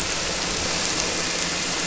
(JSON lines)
{"label": "anthrophony, boat engine", "recorder": "SoundTrap 300"}